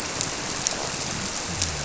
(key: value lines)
label: biophony
recorder: SoundTrap 300